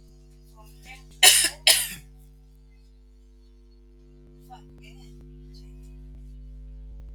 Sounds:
Cough